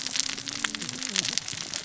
{"label": "biophony, cascading saw", "recorder": "SoundTrap 600 or HydroMoth"}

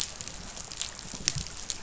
{"label": "biophony", "recorder": "SoundTrap 500"}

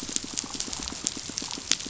{"label": "biophony, pulse", "recorder": "SoundTrap 500"}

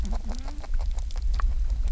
{"label": "biophony, grazing", "recorder": "SoundTrap 300"}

